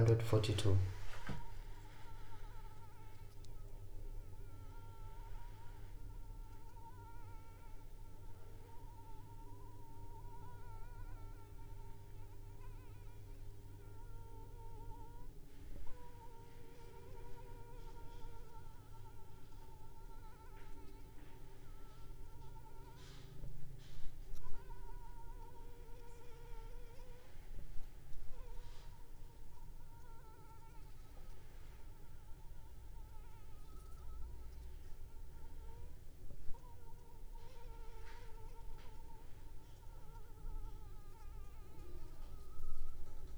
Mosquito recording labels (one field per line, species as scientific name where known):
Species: Anopheles funestus s.l.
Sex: female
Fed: unfed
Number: one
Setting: cup